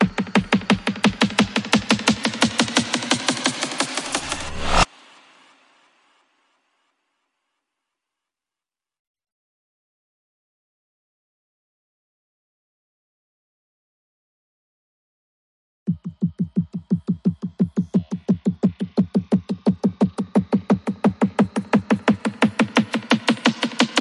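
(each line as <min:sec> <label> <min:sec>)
0:00.0 An ambient sound with a steady crescendo followed by an abrupt crescendo. 0:04.9
0:00.0 Drum beats in a steady rhythm gradually increasing. 0:04.9
0:15.9 Drum beats in a steady rhythm gradually increase. 0:24.0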